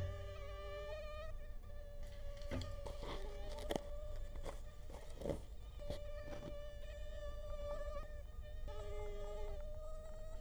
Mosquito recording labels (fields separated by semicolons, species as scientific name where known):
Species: Culex quinquefasciatus; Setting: cup